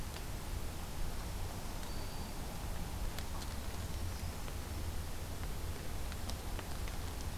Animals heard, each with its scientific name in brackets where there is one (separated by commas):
Brown Creeper (Certhia americana), Black-throated Green Warbler (Setophaga virens)